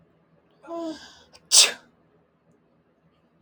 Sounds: Sneeze